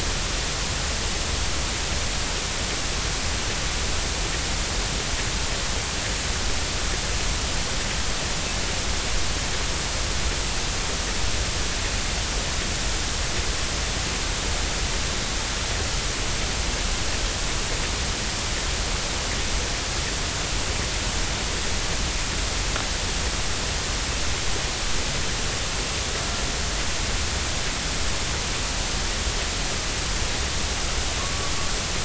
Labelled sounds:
31.2	31.5	killer whale, 1.0 to 1.2 kHz

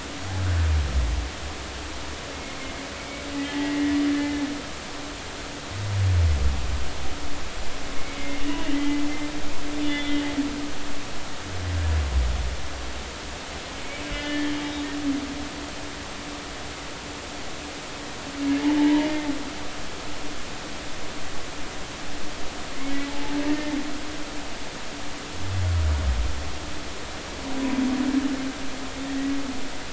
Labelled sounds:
2.3	4.4	humpback whale, 1.7 to 2.2 kHz
8.0	9.1	humpback whale, 1.9 to 2.3 kHz
9.8	10.2	humpback whale, 2.0 to 3.6 kHz
14.1	14.6	humpback whale, 1.7 to 3.3 kHz
18.8	19.3	humpback whale, 0.80 to 2.2 kHz
23.1	23.7	humpback whale, 0.83 to 1.9 kHz

